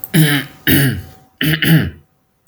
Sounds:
Throat clearing